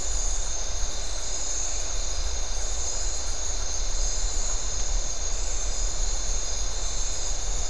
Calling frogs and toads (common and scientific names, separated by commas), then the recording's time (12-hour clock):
Iporanga white-lipped frog (Leptodactylus notoaktites), Phyllomedusa distincta
9:15pm